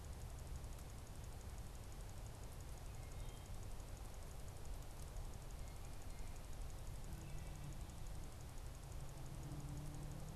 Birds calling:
Wood Thrush (Hylocichla mustelina)

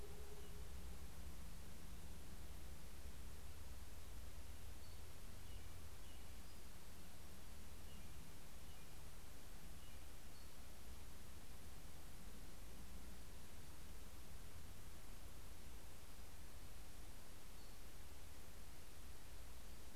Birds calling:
American Robin (Turdus migratorius)
Brown Creeper (Certhia americana)

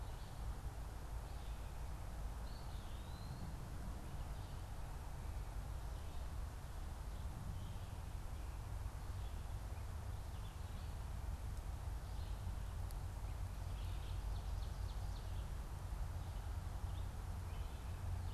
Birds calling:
Ovenbird (Seiurus aurocapilla)
Eastern Wood-Pewee (Contopus virens)

